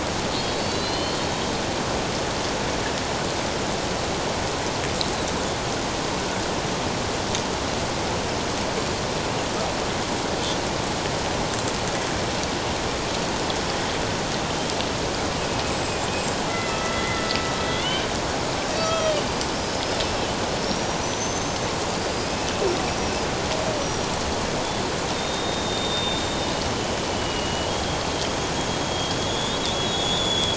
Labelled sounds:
0.3	1.5	killer whale, Bigg's (transient), 2.8 to 4.6 kHz
15.7	16.0	killer whale, Bigg's (transient), 7.5 to 7.7 kHz
16.5	17.4	killer whale, Bigg's (transient), 1.2 to 3.4 kHz
18.8	21.6	killer whale, Bigg's (transient), 1.2 to 6.3 kHz
21.9	22.5	killer whale, Bigg's (transient), 4.7 to 5.2 kHz
23.8	24.1	killer whale, Bigg's (transient), 5.6 to 5.9 kHz
25.1	27.7	killer whale, Bigg's (transient), 2.8 to 7.4 kHz
28.8	30.5	killer whale, Bigg's (transient), 3.2 to 7.0 kHz

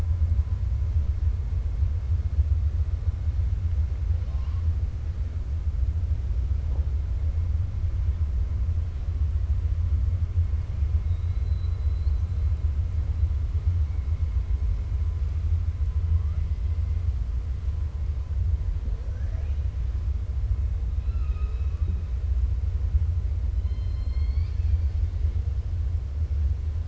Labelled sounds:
4.1	4.6	killer whale, 0.56 to 5.8 kHz
11.0	12.2	killer whale, 3.7 to 4.5 kHz
23.5	25.0	killer whale, 1.8 to 5.5 kHz

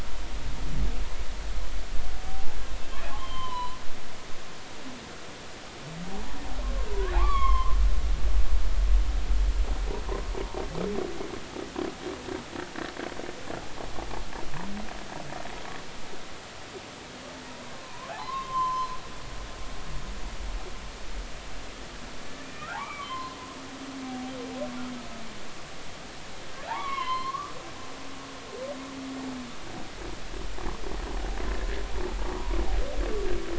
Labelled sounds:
2.3	2.6	humpback whale, 0.80 to 0.90 kHz
3.2	3.8	humpback whale, 0.93 to 3.2 kHz
6.9	7.8	humpback whale, 0.93 to 3.6 kHz
17.7	19.0	humpback whale, 0.80 to 1.2 kHz
22.4	23.4	humpback whale, 0.80 to 2.5 kHz
26.7	27.5	humpback whale, 0.80 to 4.4 kHz
32.3	32.6	humpback whale, 0.93 to 1.3 kHz

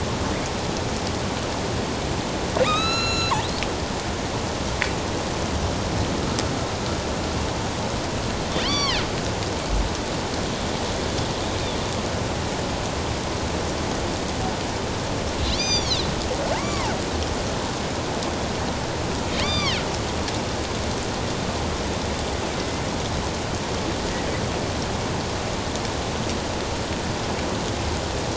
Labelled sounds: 2.6	3.3	killer whale, northern resident, A clan, AB subclan, 1.1 to 6.8 kHz
8.6	9.0	killer whale, northern resident, A clan, AB subclan, 0.97 to 5.9 kHz
15.4	16.9	killer whale, northern resident, A clan, AB subclan, 0.81 to 7.4 kHz
19.3	19.8	killer whale, northern resident, A clan, AB subclan, 1.0 to 4.9 kHz
22.6	22.8	killer whale, northern resident, A clan, AB subclan, 2.0 to 2.1 kHz

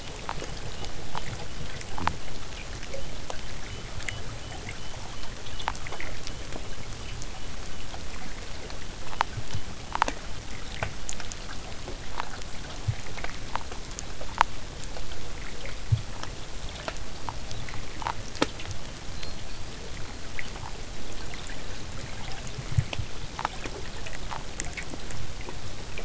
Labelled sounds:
0.0	10.0	killer whale, southern resident, whistle, 2.7 to 3.2 kHz
17.1	17.8	killer whale, southern resident, whistle, 3.4 to 4.9 kHz
19.1	19.8	killer whale, southern resident, whistle, 4.0 to 5.2 kHz

